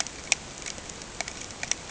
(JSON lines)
{"label": "ambient", "recorder": "HydroMoth"}